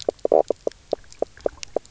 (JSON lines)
{"label": "biophony, knock croak", "recorder": "SoundTrap 300"}